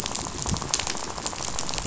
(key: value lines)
label: biophony, rattle
recorder: SoundTrap 500